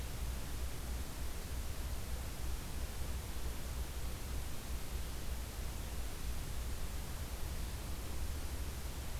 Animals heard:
forest ambience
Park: Acadia National Park